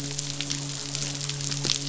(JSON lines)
{"label": "biophony, midshipman", "recorder": "SoundTrap 500"}